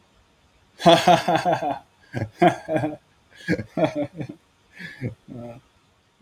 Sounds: Laughter